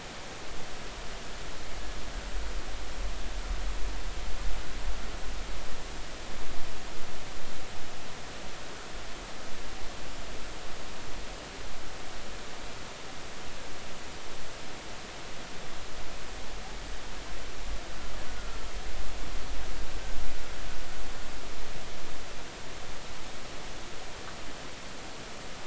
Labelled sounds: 18.3	18.6	killer whale, Bigg's (transient), 1.3 to 1.5 kHz

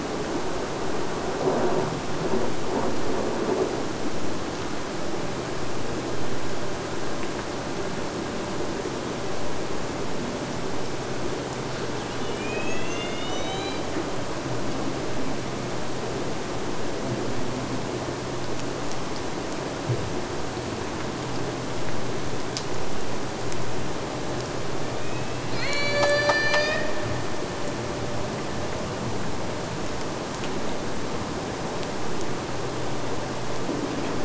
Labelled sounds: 12.1	14.0	killer whale, Bigg's (transient), AT1 transient, 1.6 to 8.0 kHz
24.8	27.0	killer whale, Bigg's (transient), AT1 transient, 0.39 to 8.0 kHz

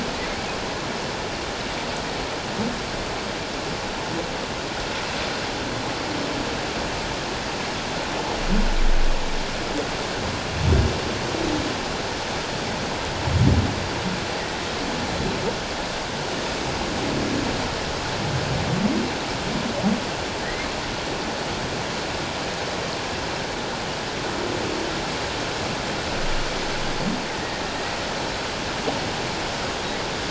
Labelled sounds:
20.4	20.7	humpback whale, 1.8 to 2.2 kHz
27.4	27.6	humpback whale, 1.8 to 1.9 kHz

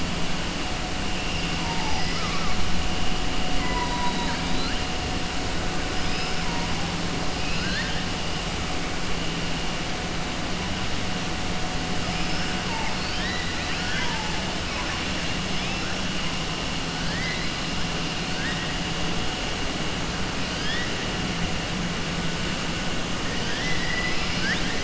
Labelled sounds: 1.6	2.5	killer whale, southern resident, 0.76 to 3.0 kHz
5.9	6.4	killer whale, southern resident, 4.7 to 5.4 kHz
7.3	8.0	killer whale, southern resident, 1.4 to 5.2 kHz
12.9	14.3	killer whale, southern resident, 0.88 to 5.2 kHz
17.0	17.4	killer whale, southern resident, 1.6 to 2.2 kHz
23.4	24.8	killer whale, southern resident, 1.4 to 5.9 kHz

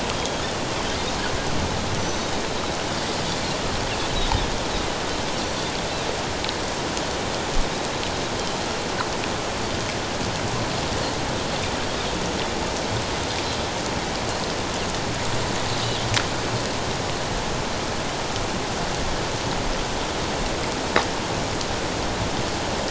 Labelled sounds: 0.1	0.4	Pacific white-sided dolphin, 3.2 to 3.3 kHz
2.0	2.3	Pacific white-sided dolphin, 5.7 to 6.2 kHz

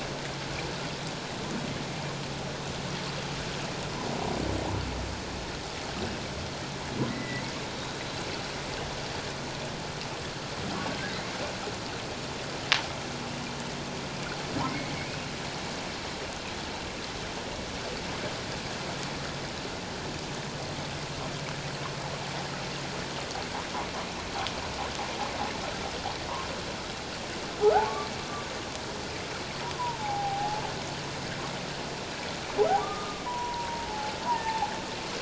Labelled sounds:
7.1	7.4	humpback whale, 1.9 to 2.1 kHz
14.7	14.9	humpback whale, 2.0 to 2.3 kHz
27.6	27.9	humpback whale, 1.2 to 1.6 kHz
29.7	30.6	humpback whale, 0.78 to 1.1 kHz
32.8	34.7	humpback whale, 0.78 to 1.3 kHz

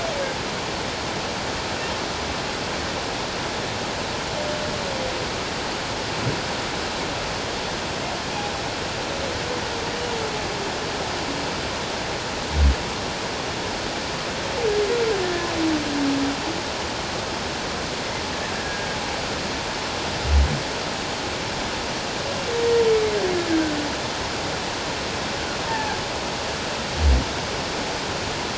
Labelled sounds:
18.5	18.9	humpback whale, 1.6 to 1.8 kHz
25.7	26.0	humpback whale, 0.78 to 0.97 kHz

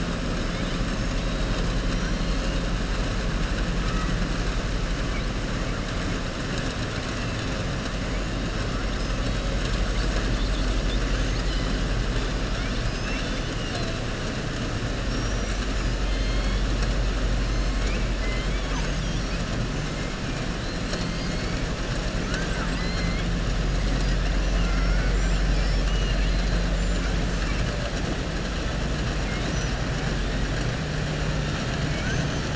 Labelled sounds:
1.9	2.6	killer whale, southern resident, 2.7 to 6.2 kHz
12.8	13.5	killer whale, southern resident, 1.6 to 6.3 kHz
15.0	15.8	killer whale, southern resident, 5.5 to 8.0 kHz
18.1	19.4	killer whale, southern resident, 0.93 to 6.7 kHz
25.4	26.5	killer whale, southern resident, 2.3 to 6.2 kHz
32.0	32.5	killer whale, southern resident, 5.4 to 7.1 kHz

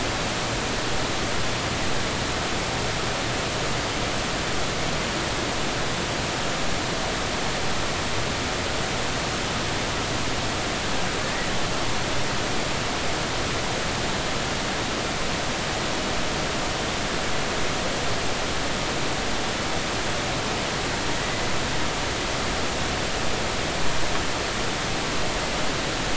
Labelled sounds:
21.1	21.4	humpback whale, 1.9 to 2.0 kHz

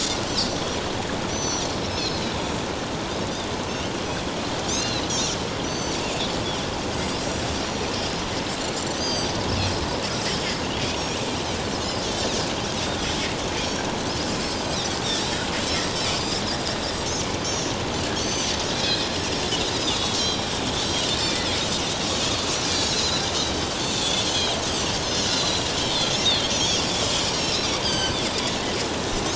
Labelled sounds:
1.3	2.1	Pacific white-sided dolphin, 4.4 to 6.1 kHz
4.7	6.1	Pacific white-sided dolphin, 2.6 to 6.7 kHz
7.3	7.9	Pacific white-sided dolphin, 5.6 to 7.7 kHz
8.8	9.8	Pacific white-sided dolphin, 3.1 to 8.0 kHz
12.0	12.3	Pacific white-sided dolphin, 3.1 to 3.5 kHz
14.6	14.9	Pacific white-sided dolphin, 3.3 to 4.2 kHz
17.4	17.7	Pacific white-sided dolphin, 5.4 to 6.5 kHz
18.1	19.1	Pacific white-sided dolphin, 3.5 to 6.2 kHz
20.1	20.5	Pacific white-sided dolphin, 5.3 to 5.9 kHz
21.2	24.6	Pacific white-sided dolphin, 2.9 to 6.3 kHz
25.3	26.5	Pacific white-sided dolphin, 3.0 to 4.5 kHz
27.3	28.2	Pacific white-sided dolphin, 1.5 to 7.9 kHz

